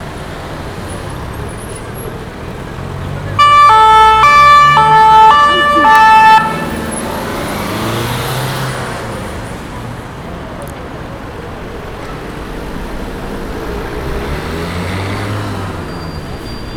Are horses running?
no